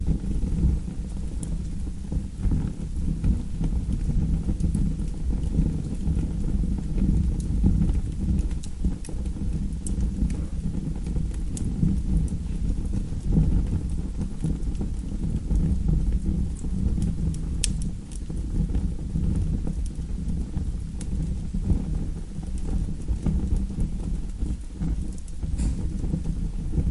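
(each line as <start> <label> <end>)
0.0 Soft crackles and pops from a wood-burning stove with a steady, warm sound that shifts gently as the fire burns. 26.9
0.0 A dry, hissing rush of air. 26.9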